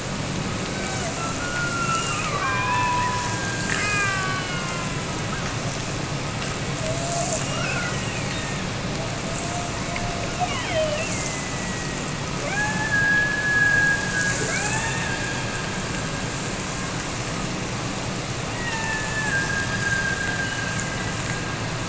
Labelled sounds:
0.6	5.3	killer whale, Bigg's (transient), Gulf of Alaska transient, 0.59 to 5.7 kHz
6.7	16.4	killer whale, Bigg's (transient), Gulf of Alaska transient, 0.48 to 5.8 kHz
18.6	21.8	killer whale, Bigg's (transient), Gulf of Alaska transient, 0.73 to 3.1 kHz

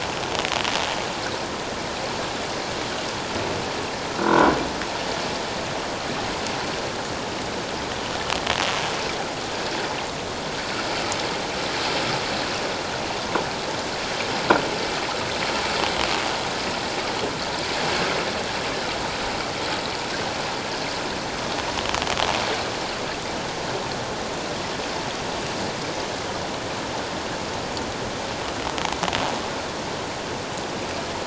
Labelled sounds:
4.2	4.5	croaking sound likely from a nearby submerged object, 1.3 to 1.6 kHz

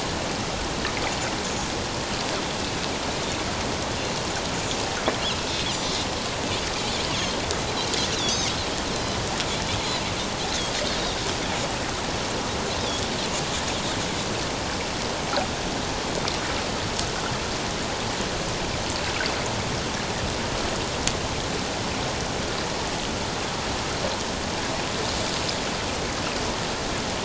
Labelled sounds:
5.3	6.1	Pacific white-sided dolphin, 2.4 to 3.8 kHz
8.1	9.2	Pacific white-sided dolphin, 3.3 to 5.2 kHz
9.8	10.0	Pacific white-sided dolphin, 3.8 to 4.3 kHz

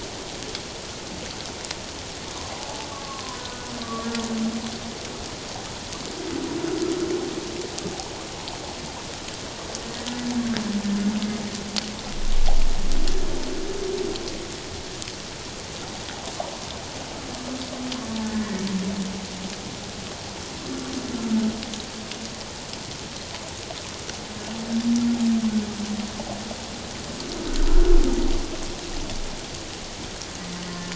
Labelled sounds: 2.6	4.1	humpback whale, 0.78 to 1.5 kHz
18.2	18.5	humpback whale, 1.7 to 1.8 kHz

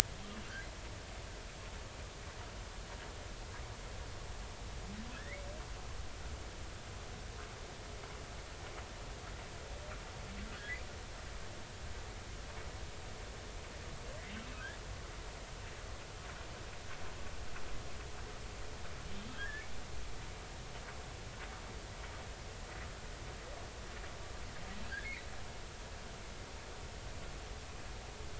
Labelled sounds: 5.2	5.5	humpback whale, 1.5 to 2.3 kHz
10.5	10.8	humpback whale, 1.4 to 2.1 kHz
19.3	19.7	humpback whale, 1.5 to 1.9 kHz

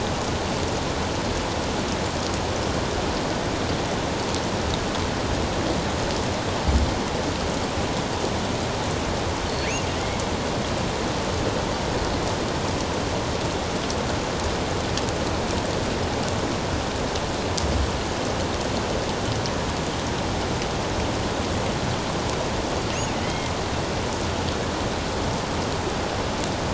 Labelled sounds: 9.5	10.2	killer whale, offshore, 1.9 to 4.5 kHz
23.2	23.5	killer whale, offshore, 1.9 to 2.2 kHz

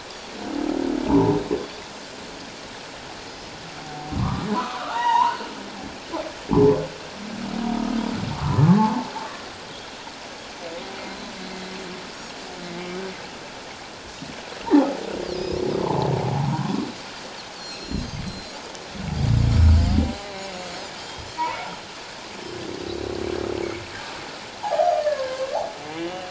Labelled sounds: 1.1	1.4	humpback whale, 0.84 to 1.1 kHz
1.6	1.8	Pacific white-sided dolphin, 3.3 to 3.7 kHz
4.2	5.4	humpback whale, 0.78 to 3.9 kHz
8.6	9.1	humpback whale, 0.78 to 1.2 kHz
11.5	11.8	humpback whale, 2.0 to 2.2 kHz
12.6	13.0	humpback whale, 2.0 to 2.2 kHz
14.6	15.0	humpback whale, 0.78 to 1.0 kHz
15.3	15.6	Pacific white-sided dolphin, 4.8 to 5.2 kHz
15.8	16.9	humpback whale, 0.78 to 1.2 kHz
17.5	18.5	Pacific white-sided dolphin, 3.8 to 4.9 kHz
20.1	21.3	Pacific white-sided dolphin, 3.0 to 6.9 kHz
21.5	21.8	humpback whale, 1.2 to 1.5 kHz
24.6	25.6	humpback whale, 0.78 to 1.8 kHz
25.9	26.2	humpback whale, 1.9 to 3.0 kHz

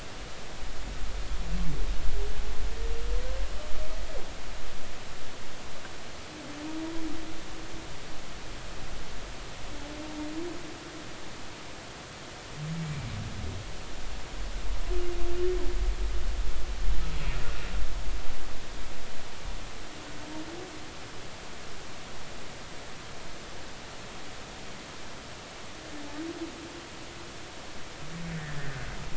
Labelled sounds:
12.8	13.1	humpback whale, 2.2 to 2.4 kHz
28.3	28.8	humpback whale, 1.4 to 2.0 kHz

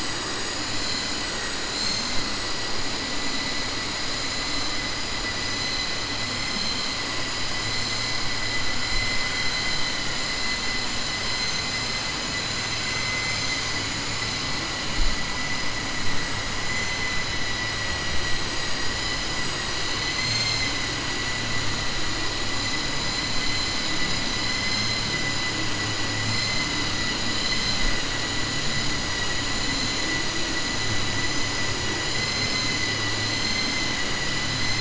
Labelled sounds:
12.8	13.6	vessel noise, 2.0 to 3.2 kHz

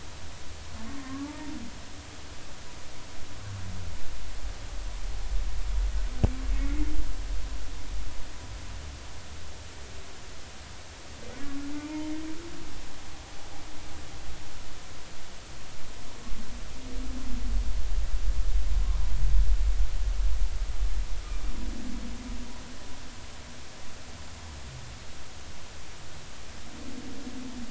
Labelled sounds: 0.9	1.5	humpback whale, 0.83 to 1.2 kHz
6.5	6.9	humpback whale, 2.0 to 2.3 kHz
11.7	12.1	humpback whale, 0.86 to 1.0 kHz

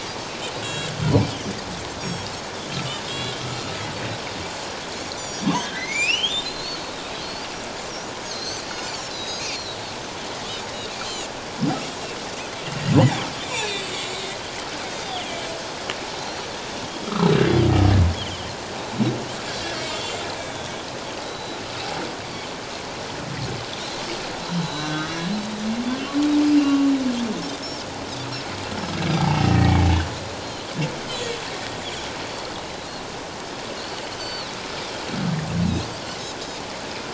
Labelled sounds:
0.5	1.5	Pacific white-sided dolphin, 1.6 to 7.8 kHz
2.0	2.3	Pacific white-sided dolphin, 5.4 to 6.8 kHz
3.0	3.4	Pacific white-sided dolphin, 2.7 to 7.4 kHz
5.2	7.0	Pacific white-sided dolphin, 2.8 to 7.2 kHz
5.6	6.5	humpback whale, 1.5 to 3.8 kHz
8.3	9.5	Pacific white-sided dolphin, 3.8 to 6.4 kHz
11.0	11.3	Pacific white-sided dolphin, 2.7 to 3.2 kHz
13.4	14.2	humpback whale, 2.1 to 5.9 kHz
14.9	15.2	Pacific white-sided dolphin, 4.7 to 5.0 kHz
15.0	15.4	humpback whale, 2.7 to 3.7 kHz
17.0	17.3	humpback whale, 1.0 to 1.4 kHz
18.1	18.5	Pacific white-sided dolphin, 2.8 to 3.5 kHz
19.8	21.6	Pacific white-sided dolphin, 3.2 to 7.6 kHz
23.7	24.0	humpback whale, 3.3 to 4.2 kHz
24.6	25.3	humpback whale, 1.5 to 4.1 kHz
26.4	26.9	humpback whale, 1.1 to 2.8 kHz
29.1	29.8	humpback whale, 1.8 to 2.5 kHz
34.0	34.5	Pacific white-sided dolphin, 2.9 to 4.6 kHz
35.6	35.9	Pacific white-sided dolphin, 3.7 to 4.1 kHz

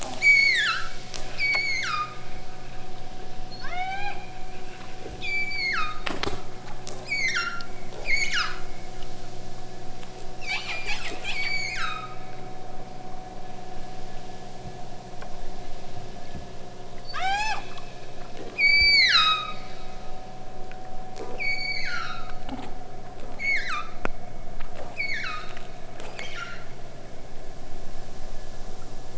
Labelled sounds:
0.0	2.3	killer whale, southern Alaska resident, 0.98 to 8.0 kHz
3.5	4.3	killer whale, southern Alaska resident, 0.37 to 8.0 kHz
5.2	6.1	killer whale, southern Alaska resident, 0.85 to 8.0 kHz
7.0	7.7	killer whale, southern Alaska resident, 1.1 to 8.0 kHz
8.0	8.6	killer whale, southern Alaska resident, 0.85 to 8.0 kHz
10.4	12.2	killer whale, southern Alaska resident, 0.64 to 8.0 kHz
17.0	17.7	killer whale, southern Alaska resident, 0.37 to 8.0 kHz
18.5	19.7	killer whale, southern Alaska resident, 0.85 to 8.0 kHz
21.3	22.4	killer whale, southern Alaska resident, 0.98 to 8.0 kHz
23.2	24.0	killer whale, southern Alaska resident, 0.81 to 8.0 kHz
24.9	25.6	killer whale, southern Alaska resident, 0.88 to 8.0 kHz
26.0	26.7	killer whale, southern Alaska resident, 0.98 to 8.0 kHz

